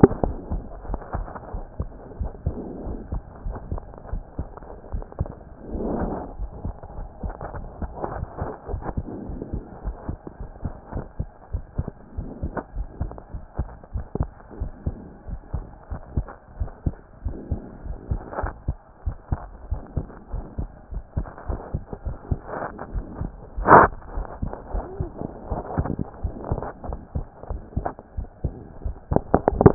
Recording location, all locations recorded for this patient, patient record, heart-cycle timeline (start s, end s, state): pulmonary valve (PV)
aortic valve (AV)+pulmonary valve (PV)+tricuspid valve (TV)+mitral valve (MV)
#Age: Child
#Sex: Male
#Height: 124.0 cm
#Weight: 23.2 kg
#Pregnancy status: False
#Murmur: Absent
#Murmur locations: nan
#Most audible location: nan
#Systolic murmur timing: nan
#Systolic murmur shape: nan
#Systolic murmur grading: nan
#Systolic murmur pitch: nan
#Systolic murmur quality: nan
#Diastolic murmur timing: nan
#Diastolic murmur shape: nan
#Diastolic murmur grading: nan
#Diastolic murmur pitch: nan
#Diastolic murmur quality: nan
#Outcome: Abnormal
#Campaign: 2014 screening campaign
0.00	0.88	unannotated
0.88	1.00	S1
1.00	1.16	systole
1.16	1.26	S2
1.26	1.54	diastole
1.54	1.64	S1
1.64	1.78	systole
1.78	1.88	S2
1.88	2.18	diastole
2.18	2.30	S1
2.30	2.44	systole
2.44	2.54	S2
2.54	2.86	diastole
2.86	2.98	S1
2.98	3.12	systole
3.12	3.22	S2
3.22	3.46	diastole
3.46	3.56	S1
3.56	3.70	systole
3.70	3.82	S2
3.82	4.12	diastole
4.12	4.22	S1
4.22	4.38	systole
4.38	4.48	S2
4.48	4.92	diastole
4.92	5.04	S1
5.04	5.20	systole
5.20	5.28	S2
5.28	5.74	diastole
5.74	5.88	S1
5.88	6.00	systole
6.00	6.14	S2
6.14	6.40	diastole
6.40	6.50	S1
6.50	6.64	systole
6.64	6.74	S2
6.74	6.98	diastole
6.98	7.08	S1
7.08	7.24	systole
7.24	7.34	S2
7.34	7.56	diastole
7.56	7.68	S1
7.68	7.82	systole
7.82	7.90	S2
7.90	8.16	diastole
8.16	8.26	S1
8.26	8.40	systole
8.40	8.48	S2
8.48	8.70	diastole
8.70	8.82	S1
8.82	8.96	systole
8.96	9.06	S2
9.06	9.28	diastole
9.28	9.40	S1
9.40	9.52	systole
9.52	9.62	S2
9.62	9.84	diastole
9.84	9.96	S1
9.96	10.08	systole
10.08	10.18	S2
10.18	10.40	diastole
10.40	10.50	S1
10.50	10.64	systole
10.64	10.74	S2
10.74	10.94	diastole
10.94	11.04	S1
11.04	11.18	systole
11.18	11.28	S2
11.28	11.52	diastole
11.52	11.64	S1
11.64	11.78	systole
11.78	11.88	S2
11.88	12.18	diastole
12.18	12.28	S1
12.28	12.42	systole
12.42	12.50	S2
12.50	12.76	diastole
12.76	12.88	S1
12.88	13.00	systole
13.00	13.12	S2
13.12	13.34	diastole
13.34	13.44	S1
13.44	13.58	systole
13.58	13.66	S2
13.66	13.94	diastole
13.94	14.04	S1
14.04	14.18	systole
14.18	14.28	S2
14.28	14.60	diastole
14.60	14.70	S1
14.70	14.86	systole
14.86	14.96	S2
14.96	15.28	diastole
15.28	15.40	S1
15.40	15.54	systole
15.54	15.64	S2
15.64	15.92	diastole
15.92	16.00	S1
16.00	16.16	systole
16.16	16.26	S2
16.26	16.58	diastole
16.58	16.70	S1
16.70	16.84	systole
16.84	16.94	S2
16.94	17.24	diastole
17.24	17.36	S1
17.36	17.50	systole
17.50	17.60	S2
17.60	17.86	diastole
17.86	17.98	S1
17.98	18.10	systole
18.10	18.20	S2
18.20	18.42	diastole
18.42	18.52	S1
18.52	18.66	systole
18.66	18.78	S2
18.78	19.06	diastole
19.06	19.16	S1
19.16	19.30	systole
19.30	19.40	S2
19.40	19.70	diastole
19.70	19.82	S1
19.82	19.96	systole
19.96	20.06	S2
20.06	20.32	diastole
20.32	20.44	S1
20.44	20.58	systole
20.58	20.68	S2
20.68	20.92	diastole
20.92	21.04	S1
21.04	21.16	systole
21.16	21.28	S2
21.28	21.48	diastole
21.48	21.60	S1
21.60	21.72	systole
21.72	21.82	S2
21.82	22.06	diastole
22.06	29.74	unannotated